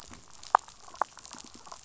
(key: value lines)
label: biophony
recorder: SoundTrap 500